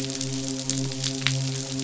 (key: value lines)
label: biophony, midshipman
recorder: SoundTrap 500